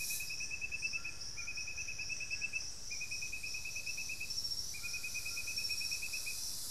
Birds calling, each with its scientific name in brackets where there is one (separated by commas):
White-throated Toucan (Ramphastos tucanus), Thrush-like Wren (Campylorhynchus turdinus), unidentified bird, Plain-winged Antshrike (Thamnophilus schistaceus)